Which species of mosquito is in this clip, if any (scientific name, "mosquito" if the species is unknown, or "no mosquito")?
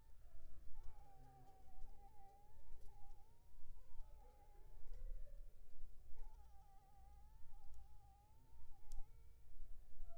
Anopheles funestus s.s.